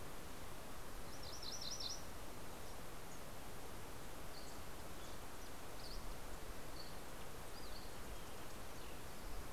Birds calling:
MacGillivray's Warbler (Geothlypis tolmiei)
Dusky Flycatcher (Empidonax oberholseri)
House Wren (Troglodytes aedon)

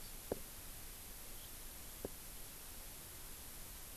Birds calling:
Hawaii Amakihi (Chlorodrepanis virens)

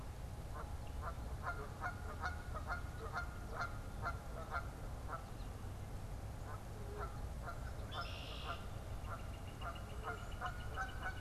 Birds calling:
Red-winged Blackbird (Agelaius phoeniceus)
Canada Goose (Branta canadensis)
Northern Flicker (Colaptes auratus)

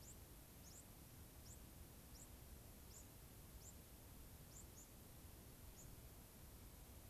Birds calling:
White-crowned Sparrow (Zonotrichia leucophrys)

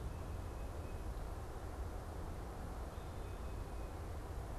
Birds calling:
Tufted Titmouse (Baeolophus bicolor)

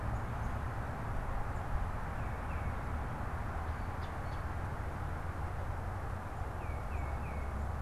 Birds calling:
Tufted Titmouse (Baeolophus bicolor)

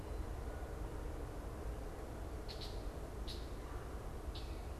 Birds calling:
Red-winged Blackbird (Agelaius phoeniceus)

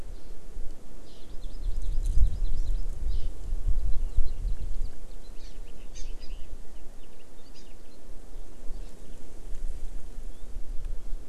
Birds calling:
Eurasian Skylark (Alauda arvensis)
Hawaii Amakihi (Chlorodrepanis virens)

